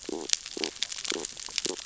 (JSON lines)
{"label": "biophony, stridulation", "recorder": "SoundTrap 600 or HydroMoth"}